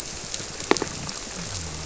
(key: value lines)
label: biophony
recorder: SoundTrap 300